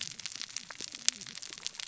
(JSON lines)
{"label": "biophony, cascading saw", "recorder": "SoundTrap 600 or HydroMoth"}